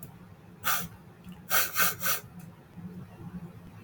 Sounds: Sniff